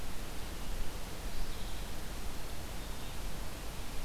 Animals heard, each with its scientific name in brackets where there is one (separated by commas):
Mourning Warbler (Geothlypis philadelphia)